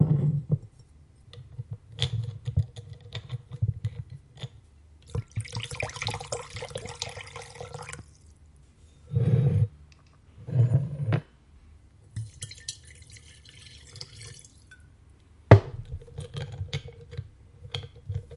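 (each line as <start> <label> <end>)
0.0 An object is moved on a surface. 0.6
1.6 A bottle cap is being loosened with a twisting sound. 4.5
5.1 Water pours, creating soft splashing and tickling sounds. 8.1
9.1 A sliding noise of an object being moved on a surface. 9.7
10.4 An object sliding on a surface. 11.2
12.1 Water is poured from a container, making splashing and trickling sounds. 14.8
15.5 A dull, short impact sound of an object being placed on a surface. 15.7
15.7 A bottle cap is being twisted tightly, creating a twisting sound. 18.4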